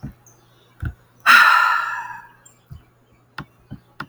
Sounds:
Sigh